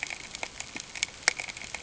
{"label": "ambient", "recorder": "HydroMoth"}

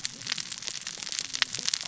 {"label": "biophony, cascading saw", "recorder": "SoundTrap 600 or HydroMoth"}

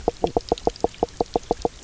{"label": "biophony, knock croak", "recorder": "SoundTrap 300"}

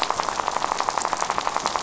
{"label": "biophony, rattle", "recorder": "SoundTrap 500"}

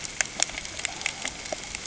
{"label": "ambient", "recorder": "HydroMoth"}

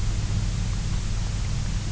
{"label": "anthrophony, boat engine", "recorder": "SoundTrap 300"}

